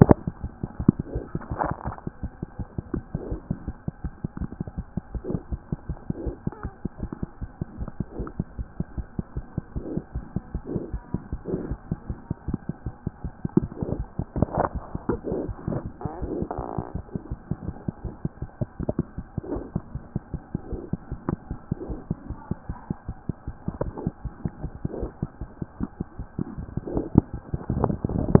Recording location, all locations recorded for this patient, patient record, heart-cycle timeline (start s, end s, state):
aortic valve (AV)
aortic valve (AV)+mitral valve (MV)
#Age: Infant
#Sex: Female
#Height: 49.0 cm
#Weight: 4.6 kg
#Pregnancy status: False
#Murmur: Absent
#Murmur locations: nan
#Most audible location: nan
#Systolic murmur timing: nan
#Systolic murmur shape: nan
#Systolic murmur grading: nan
#Systolic murmur pitch: nan
#Systolic murmur quality: nan
#Diastolic murmur timing: nan
#Diastolic murmur shape: nan
#Diastolic murmur grading: nan
#Diastolic murmur pitch: nan
#Diastolic murmur quality: nan
#Outcome: Normal
#Campaign: 2014 screening campaign
0.00	3.32	unannotated
3.32	3.37	S1
3.37	3.51	systole
3.51	3.55	S2
3.55	3.68	diastole
3.68	3.73	S1
3.73	3.88	systole
3.88	3.92	S2
3.92	4.04	diastole
4.04	4.09	S1
4.09	4.24	systole
4.24	4.28	S2
4.28	4.41	diastole
4.41	4.47	S1
4.47	4.60	systole
4.60	4.64	S2
4.64	4.78	diastole
4.78	4.83	S1
4.83	4.97	systole
4.97	5.01	S2
5.01	5.15	diastole
5.15	5.20	S1
5.20	5.34	systole
5.34	5.38	S2
5.38	5.52	diastole
5.52	5.57	S1
5.57	5.73	systole
5.73	5.77	S2
5.77	5.90	diastole
5.90	28.40	unannotated